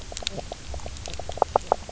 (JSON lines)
{"label": "biophony, knock croak", "recorder": "SoundTrap 300"}